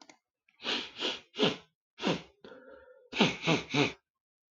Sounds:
Sniff